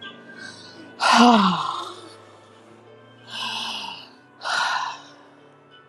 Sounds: Sigh